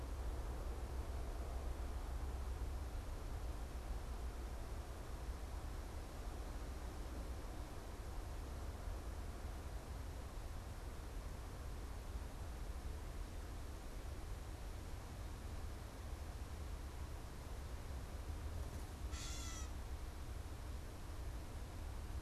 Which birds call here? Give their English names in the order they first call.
Gray Catbird